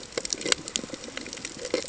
{"label": "ambient", "recorder": "HydroMoth"}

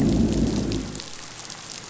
{"label": "biophony, growl", "recorder": "SoundTrap 500"}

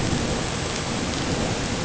{"label": "ambient", "recorder": "HydroMoth"}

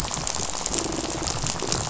{"label": "biophony, rattle", "recorder": "SoundTrap 500"}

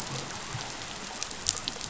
{"label": "biophony", "recorder": "SoundTrap 500"}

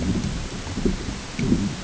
{"label": "ambient", "recorder": "HydroMoth"}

